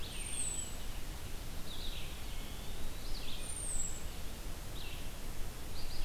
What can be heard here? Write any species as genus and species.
Vireo olivaceus, Turdus migratorius, Contopus virens